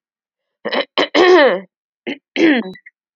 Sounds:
Throat clearing